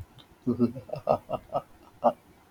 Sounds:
Laughter